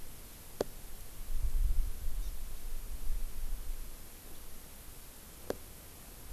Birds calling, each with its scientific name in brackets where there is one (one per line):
Hawaii Amakihi (Chlorodrepanis virens)